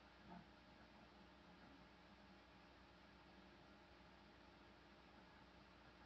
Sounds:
Sigh